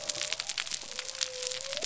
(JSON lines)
{"label": "biophony", "recorder": "SoundTrap 300"}